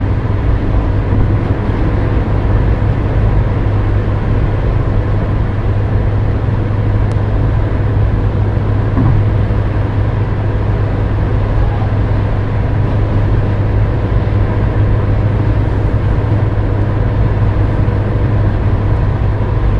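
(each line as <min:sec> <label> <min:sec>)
0:00.0 Engine hums steadily with occasional bumps. 0:19.8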